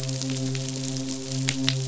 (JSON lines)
{"label": "biophony, midshipman", "recorder": "SoundTrap 500"}